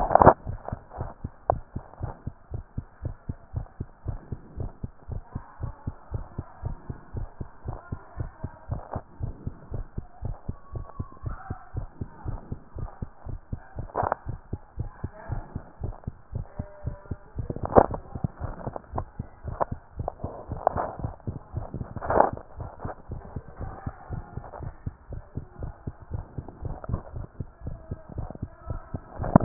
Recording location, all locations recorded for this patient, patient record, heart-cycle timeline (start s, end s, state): tricuspid valve (TV)
aortic valve (AV)+pulmonary valve (PV)+tricuspid valve (TV)+mitral valve (MV)
#Age: Adolescent
#Sex: Male
#Height: 151.0 cm
#Weight: 38.3 kg
#Pregnancy status: False
#Murmur: Absent
#Murmur locations: nan
#Most audible location: nan
#Systolic murmur timing: nan
#Systolic murmur shape: nan
#Systolic murmur grading: nan
#Systolic murmur pitch: nan
#Systolic murmur quality: nan
#Diastolic murmur timing: nan
#Diastolic murmur shape: nan
#Diastolic murmur grading: nan
#Diastolic murmur pitch: nan
#Diastolic murmur quality: nan
#Outcome: Normal
#Campaign: 2015 screening campaign
0.00	2.00	unannotated
2.00	2.12	S1
2.12	2.24	systole
2.24	2.34	S2
2.34	2.50	diastole
2.50	2.64	S1
2.64	2.74	systole
2.74	2.88	S2
2.88	3.02	diastole
3.02	3.16	S1
3.16	3.26	systole
3.26	3.40	S2
3.40	3.54	diastole
3.54	3.68	S1
3.68	3.80	systole
3.80	3.88	S2
3.88	4.02	diastole
4.02	4.20	S1
4.20	4.28	systole
4.28	4.42	S2
4.42	4.54	diastole
4.54	4.72	S1
4.72	4.80	systole
4.80	4.94	S2
4.94	5.08	diastole
5.08	5.22	S1
5.22	5.32	systole
5.32	5.46	S2
5.46	5.60	diastole
5.60	5.74	S1
5.74	5.84	systole
5.84	5.94	S2
5.94	6.12	diastole
6.12	6.24	S1
6.24	6.36	systole
6.36	6.46	S2
6.46	6.60	diastole
6.60	6.78	S1
6.78	6.86	systole
6.86	6.96	S2
6.96	7.12	diastole
7.12	7.26	S1
7.26	7.38	systole
7.38	7.48	S2
7.48	7.64	diastole
7.64	7.80	S1
7.80	7.88	systole
7.88	8.02	S2
8.02	8.18	diastole
8.18	8.30	S1
8.30	8.42	systole
8.42	8.52	S2
8.52	8.68	diastole
8.68	8.82	S1
8.82	8.92	systole
8.92	9.02	S2
9.02	9.20	diastole
9.20	9.36	S1
9.36	9.44	systole
9.44	9.58	S2
9.58	9.72	diastole
9.72	9.84	S1
9.84	9.94	systole
9.94	10.04	S2
10.04	10.22	diastole
10.22	10.36	S1
10.36	10.46	systole
10.46	10.56	S2
10.56	10.70	diastole
10.70	10.86	S1
10.86	10.96	systole
10.96	11.10	S2
11.10	11.24	diastole
11.24	11.40	S1
11.40	11.48	systole
11.48	11.58	S2
11.58	11.74	diastole
11.74	11.88	S1
11.88	11.98	systole
11.98	12.08	S2
12.08	12.22	diastole
12.22	12.38	S1
12.38	12.48	systole
12.48	12.58	S2
12.58	12.76	diastole
12.76	12.88	S1
12.88	12.98	systole
12.98	13.08	S2
13.08	13.26	diastole
13.26	13.40	S1
13.40	13.50	systole
13.50	13.60	S2
13.60	13.76	diastole
13.76	13.88	S1
13.88	14.00	systole
14.00	14.10	S2
14.10	14.26	diastole
14.26	14.40	S1
14.40	14.50	systole
14.50	14.60	S2
14.60	14.78	diastole
14.78	14.90	S1
14.90	15.02	systole
15.02	15.12	S2
15.12	15.26	diastole
15.26	15.44	S1
15.44	15.52	systole
15.52	15.62	S2
15.62	15.80	diastole
15.80	15.96	S1
15.96	16.04	systole
16.04	16.14	S2
16.14	16.32	diastole
16.32	16.46	S1
16.46	16.56	systole
16.56	16.70	S2
16.70	16.84	diastole
16.84	16.96	S1
16.96	17.08	systole
17.08	17.18	S2
17.18	17.34	diastole
17.34	29.44	unannotated